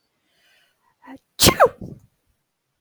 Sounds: Sneeze